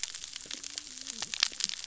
{"label": "biophony, cascading saw", "recorder": "SoundTrap 600 or HydroMoth"}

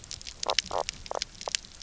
{"label": "biophony, knock croak", "recorder": "SoundTrap 300"}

